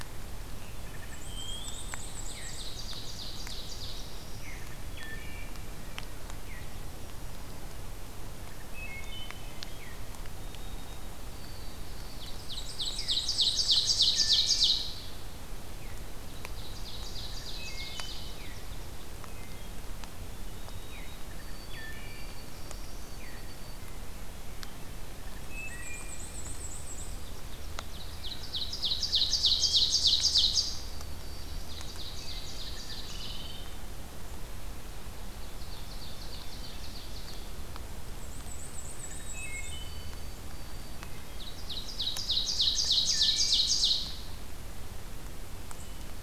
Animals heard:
Black-throated Blue Warbler (Setophaga caerulescens), Wood Thrush (Hylocichla mustelina), Ovenbird (Seiurus aurocapilla), Veery (Catharus fuscescens), Black-and-white Warbler (Mniotilta varia), Black-throated Green Warbler (Setophaga virens), White-throated Sparrow (Zonotrichia albicollis)

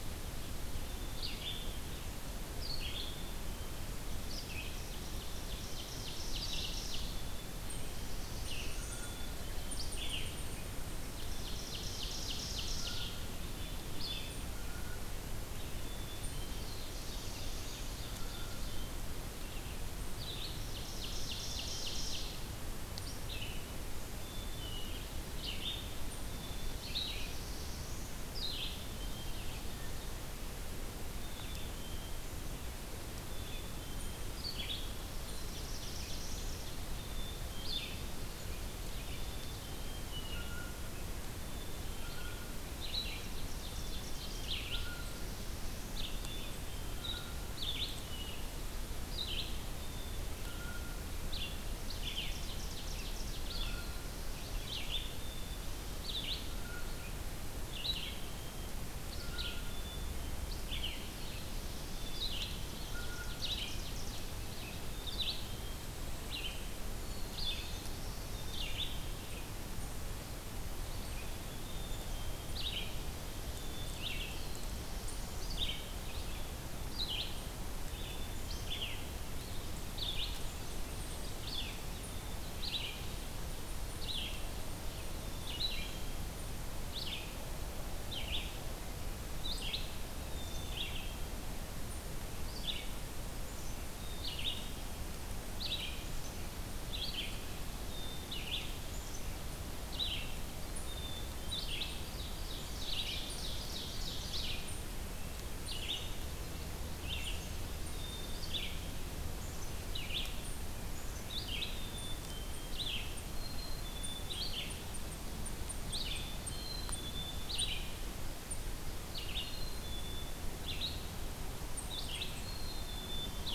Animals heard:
Black-throated Blue Warbler (Setophaga caerulescens), Black-capped Chickadee (Poecile atricapillus), Eastern Chipmunk (Tamias striatus), Red-eyed Vireo (Vireo olivaceus), Ovenbird (Seiurus aurocapilla), Blue Jay (Cyanocitta cristata)

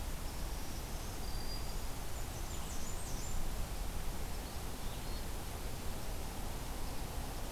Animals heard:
Black-throated Green Warbler (Setophaga virens), Blackburnian Warbler (Setophaga fusca), Eastern Wood-Pewee (Contopus virens)

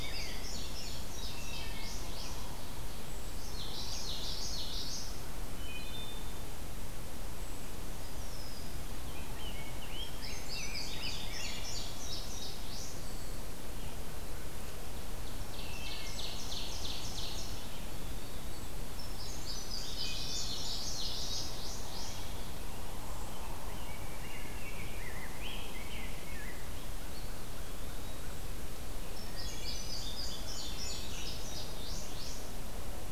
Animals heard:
Common Yellowthroat (Geothlypis trichas), Rose-breasted Grosbeak (Pheucticus ludovicianus), Eastern Wood-Pewee (Contopus virens), Indigo Bunting (Passerina cyanea), Wood Thrush (Hylocichla mustelina), Ovenbird (Seiurus aurocapilla)

